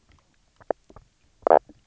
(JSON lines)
{"label": "biophony, knock croak", "recorder": "SoundTrap 300"}